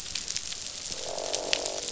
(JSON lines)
{"label": "biophony, croak", "recorder": "SoundTrap 500"}